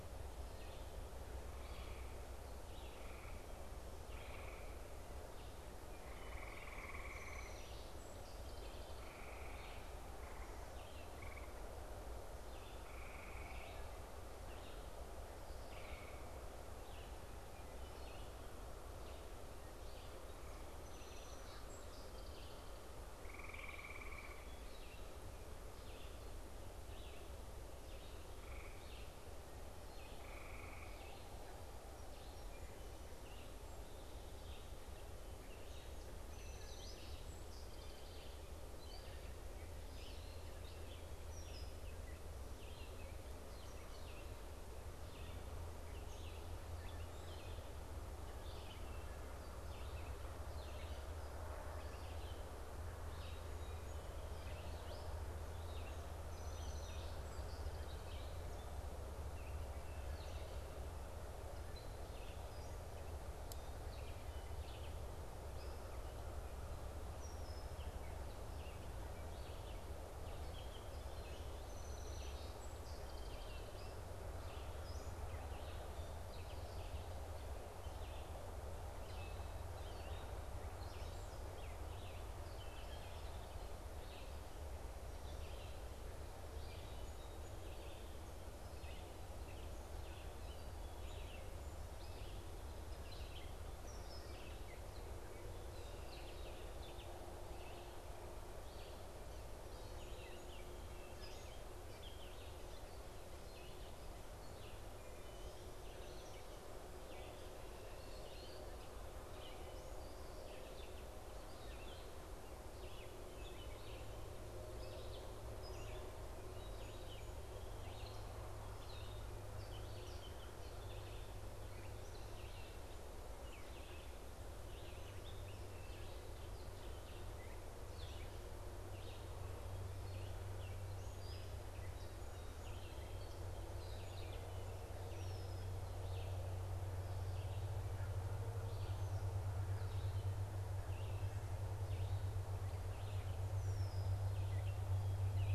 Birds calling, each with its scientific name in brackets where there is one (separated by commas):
Song Sparrow (Melospiza melodia), Red-winged Blackbird (Agelaius phoeniceus), unidentified bird, Wood Thrush (Hylocichla mustelina), Red-eyed Vireo (Vireo olivaceus)